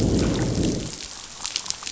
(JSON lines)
{"label": "biophony, growl", "recorder": "SoundTrap 500"}